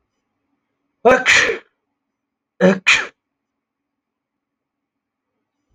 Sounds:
Sneeze